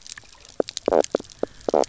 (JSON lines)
{"label": "biophony, knock croak", "recorder": "SoundTrap 300"}